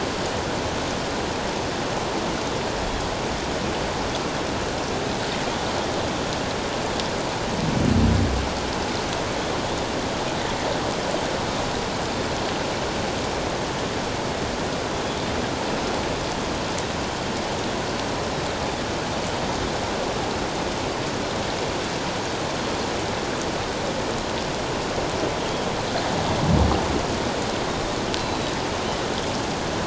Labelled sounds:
28.2	28.5	Pacific white-sided dolphin, 3.8 to 4.1 kHz

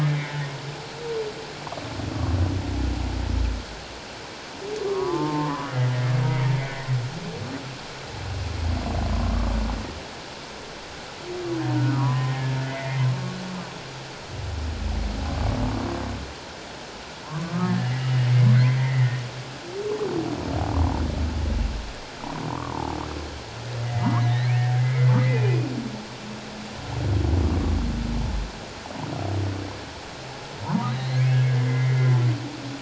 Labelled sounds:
0.1	0.3	humpback whale, 2.0 to 2.4 kHz
4.8	5.7	humpback whale, 0.84 to 1.3 kHz
11.7	13.1	humpback whale, 0.91 to 2.2 kHz
17.2	18.1	humpback whale, 0.88 to 2.1 kHz
18.5	19.2	humpback whale, 1.8 to 2.2 kHz
23.8	25.7	humpback whale, 1.7 to 3.0 kHz
30.6	32.2	humpback whale, 0.88 to 4.3 kHz

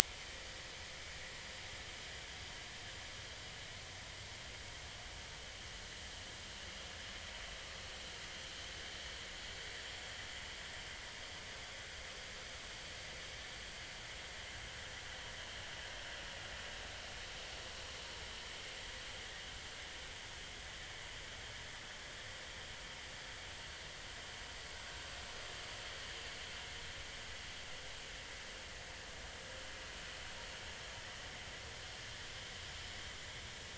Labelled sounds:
0.2	0.5	vessel noise, 1.8 to 2.3 kHz

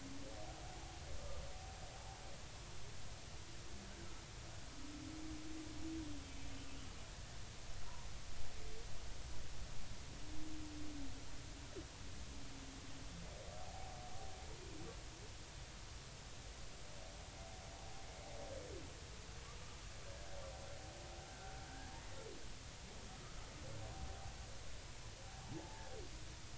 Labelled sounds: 14.6	15.0	humpback whale, 0.80 to 0.86 kHz
21.7	21.9	humpback whale, 1.4 to 1.8 kHz
25.5	25.9	humpback whale, 0.80 to 0.93 kHz

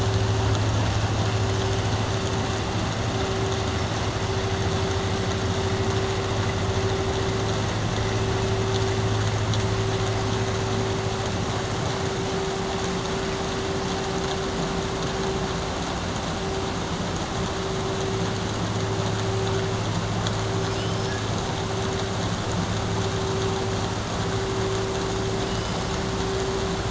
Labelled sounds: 20.6	21.2	killer whale, southern resident, 5.1 to 5.7 kHz

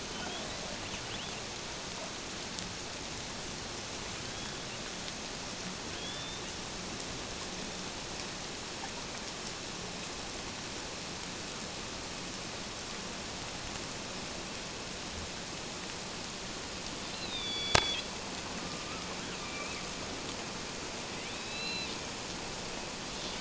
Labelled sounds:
4.3	4.7	killer whale, northern resident, A clan, AA subclan, A05 pod, call N09iii, 3.2 to 3.4 kHz
6.0	6.4	killer whale, northern resident, A clan, AA subclan, A05 pod, call N09iii, 3.2 to 3.8 kHz
17.1	18.1	killer whale, northern resident, A clan, AA subclan, A05 pod, call N04, 2.2 to 4.9 kHz
19.4	19.8	killer whale, northern resident, A clan, AA subclan, 2.3 to 2.6 kHz
21.3	21.9	killer whale, northern resident, A clan, AA subclan, 2.4 to 4.1 kHz

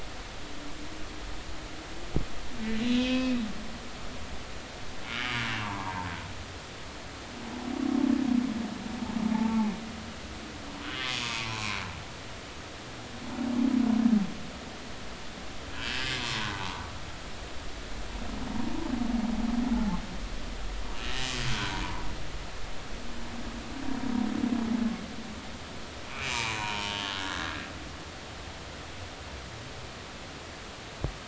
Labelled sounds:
3.0	3.4	humpback whale, 2.4 to 2.7 kHz
5.1	6.1	humpback whale, 0.80 to 1.5 kHz
9.3	9.7	humpback whale, 0.80 to 1.2 kHz
11.2	11.8	humpback whale, 0.83 to 2.7 kHz
15.8	16.9	humpback whale, 0.83 to 2.7 kHz
18.6	18.9	humpback whale, 0.86 to 1.0 kHz
19.7	20.0	humpback whale, 0.80 to 0.93 kHz
21.5	21.8	humpback whale, 1.4 to 1.6 kHz
26.1	27.6	humpback whale, 0.80 to 4.1 kHz

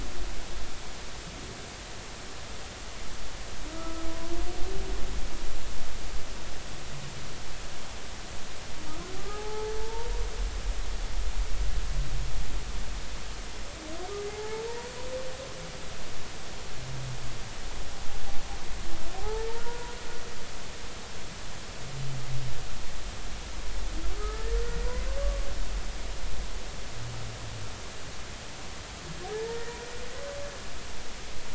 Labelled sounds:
3.7	4.1	humpback whale, 1.2 to 1.4 kHz
9.2	10.1	humpback whale, 0.80 to 1.3 kHz
14.3	14.6	humpback whale, 0.80 to 0.93 kHz
19.2	19.9	humpback whale, 0.80 to 1.5 kHz
24.2	25.5	humpback whale, 1.1 to 2.0 kHz
29.2	29.8	humpback whale, 0.80 to 1.9 kHz

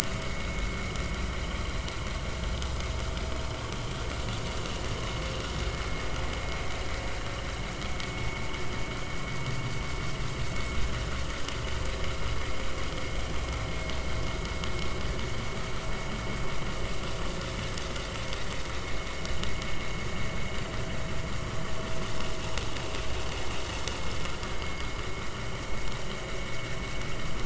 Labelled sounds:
0.2	0.5	vessel noise, 1.9 to 2.3 kHz
24.6	24.9	vessel noise, 2.1 to 2.2 kHz

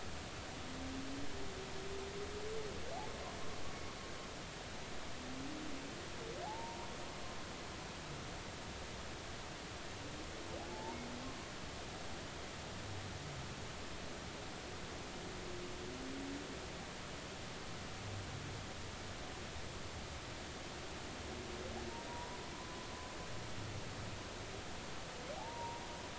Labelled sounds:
6.4	6.9	humpback whale, 0.80 to 1.1 kHz
10.7	11.0	humpback whale, 0.83 to 0.99 kHz
22.1	22.4	humpback whale, 0.90 to 1.0 kHz
25.4	25.8	humpback whale, 0.80 to 1.0 kHz

